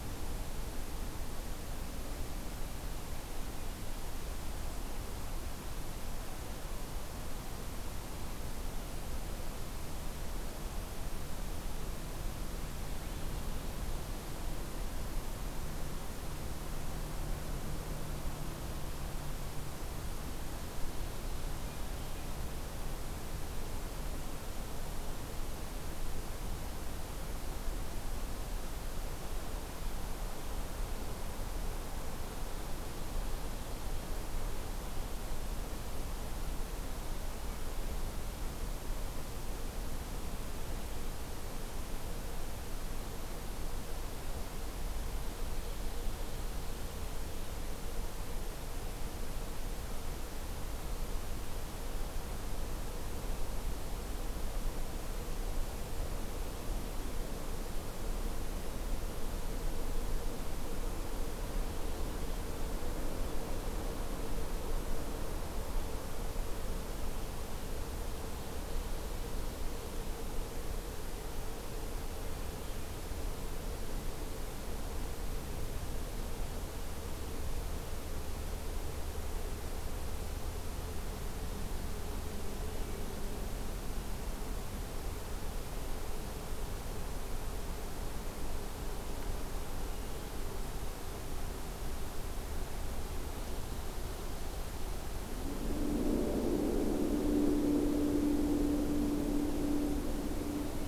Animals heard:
forest ambience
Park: Acadia National Park